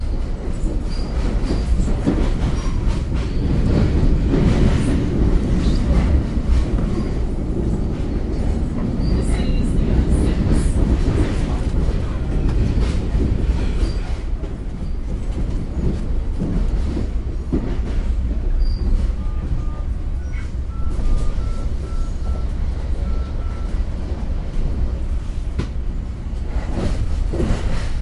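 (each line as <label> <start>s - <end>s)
A train is passing by. 0.0s - 28.0s
A train squeaks. 0.8s - 3.3s
A train squeaks. 6.9s - 7.4s
A woman is making an announcement. 9.1s - 11.3s
A train squeaks. 9.1s - 9.6s
A train squeaks. 13.8s - 15.5s
A train squeaks. 18.5s - 19.4s
A person is dialing a phone. 19.1s - 23.7s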